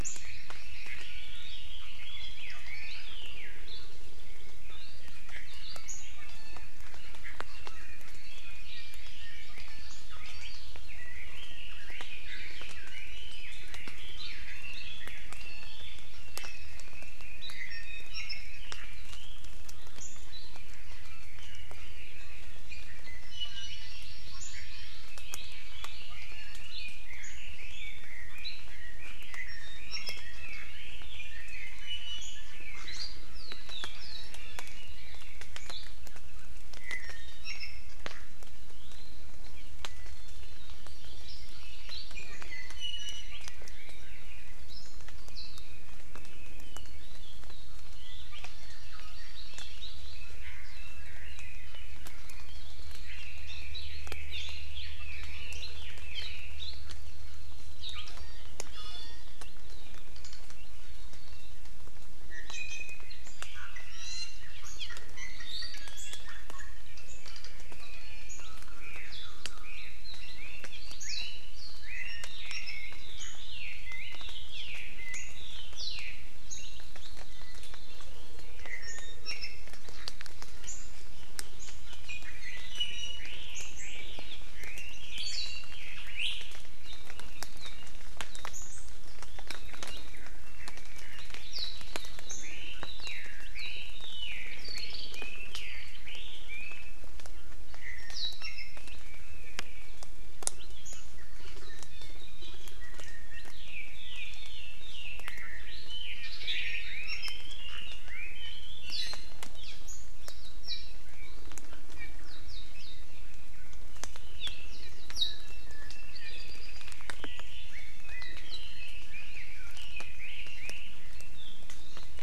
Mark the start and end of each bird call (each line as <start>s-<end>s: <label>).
0.0s-3.7s: Chinese Hwamei (Garrulax canorus)
0.1s-1.3s: Hawaii Amakihi (Chlorodrepanis virens)
2.2s-3.1s: Iiwi (Drepanis coccinea)
4.7s-10.7s: Iiwi (Drepanis coccinea)
10.9s-19.5s: Chinese Hwamei (Garrulax canorus)
15.4s-15.8s: Iiwi (Drepanis coccinea)
17.4s-18.5s: Iiwi (Drepanis coccinea)
20.5s-24.1s: Iiwi (Drepanis coccinea)
23.6s-25.1s: Hawaii Amakihi (Chlorodrepanis virens)
26.1s-26.7s: Iiwi (Drepanis coccinea)
26.6s-33.1s: Chinese Hwamei (Garrulax canorus)
29.5s-30.5s: Iiwi (Drepanis coccinea)
31.8s-32.2s: Iiwi (Drepanis coccinea)
33.9s-34.8s: Iiwi (Drepanis coccinea)
36.8s-37.9s: Iiwi (Drepanis coccinea)
40.9s-42.2s: Hawaii Amakihi (Chlorodrepanis virens)
41.9s-43.4s: Iiwi (Drepanis coccinea)
48.0s-50.0s: Iiwi (Drepanis coccinea)
48.3s-50.4s: Hawaii Amakihi (Chlorodrepanis virens)
50.2s-52.2s: Chinese Hwamei (Garrulax canorus)
53.1s-56.8s: Apapane (Himatione sanguinea)
55.2s-55.5s: Iiwi (Drepanis coccinea)
58.2s-59.3s: Iiwi (Drepanis coccinea)
62.3s-63.1s: Iiwi (Drepanis coccinea)
63.4s-68.7s: Iiwi (Drepanis coccinea)
68.7s-76.2s: Chinese Hwamei (Garrulax canorus)
78.6s-79.7s: Iiwi (Drepanis coccinea)
82.1s-83.4s: Iiwi (Drepanis coccinea)
83.2s-86.7s: Chinese Hwamei (Garrulax canorus)
92.4s-97.1s: Chinese Hwamei (Garrulax canorus)
97.8s-99.0s: Iiwi (Drepanis coccinea)
101.7s-102.8s: Iiwi (Drepanis coccinea)
102.9s-108.9s: Chinese Hwamei (Garrulax canorus)
106.2s-107.0s: Omao (Myadestes obscurus)
108.9s-109.5s: Hawaii Amakihi (Chlorodrepanis virens)
116.2s-117.0s: Apapane (Himatione sanguinea)
117.2s-122.2s: Chinese Hwamei (Garrulax canorus)